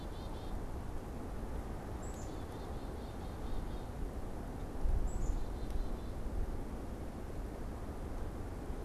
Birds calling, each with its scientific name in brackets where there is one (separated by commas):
Black-capped Chickadee (Poecile atricapillus)